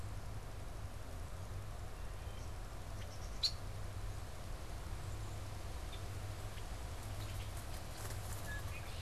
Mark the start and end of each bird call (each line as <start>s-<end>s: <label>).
0.0s-9.0s: Red-winged Blackbird (Agelaius phoeniceus)
2.0s-2.8s: Wood Thrush (Hylocichla mustelina)